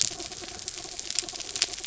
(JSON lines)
{"label": "anthrophony, mechanical", "recorder": "SoundTrap 300"}